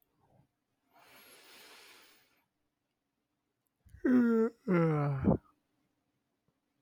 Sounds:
Sigh